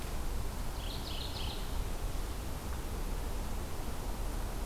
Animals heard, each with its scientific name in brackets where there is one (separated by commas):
Mourning Warbler (Geothlypis philadelphia)